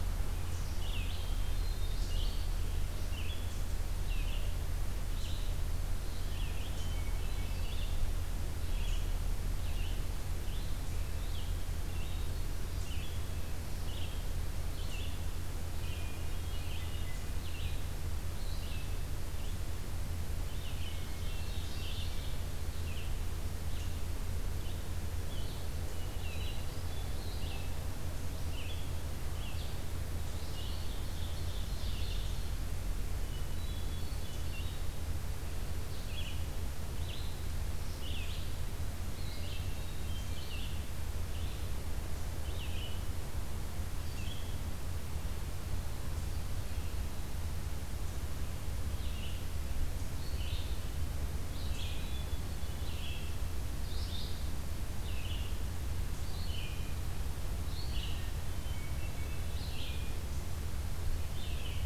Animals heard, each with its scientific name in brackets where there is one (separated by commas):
Red-eyed Vireo (Vireo olivaceus), Hermit Thrush (Catharus guttatus), Ovenbird (Seiurus aurocapilla), Eastern Chipmunk (Tamias striatus)